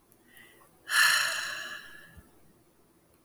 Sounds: Sigh